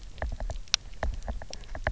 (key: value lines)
label: biophony, knock
recorder: SoundTrap 300